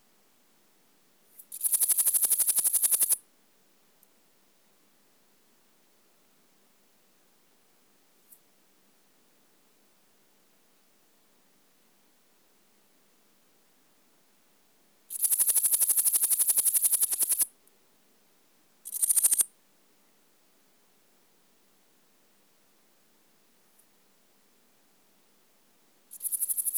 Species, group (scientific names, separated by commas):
Pholidoptera frivaldszkyi, Orthoptera